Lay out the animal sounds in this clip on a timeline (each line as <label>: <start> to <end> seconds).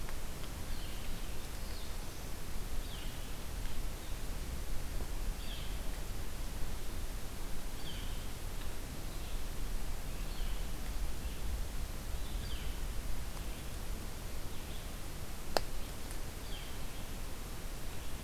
Red-eyed Vireo (Vireo olivaceus): 0.0 to 18.2 seconds
Northern Flicker (Colaptes auratus): 1.5 to 1.9 seconds
Northern Flicker (Colaptes auratus): 2.7 to 3.2 seconds
Northern Flicker (Colaptes auratus): 5.4 to 5.7 seconds
Northern Flicker (Colaptes auratus): 7.8 to 8.2 seconds
Northern Flicker (Colaptes auratus): 10.2 to 10.5 seconds
Northern Flicker (Colaptes auratus): 12.3 to 12.7 seconds
Northern Flicker (Colaptes auratus): 16.4 to 16.8 seconds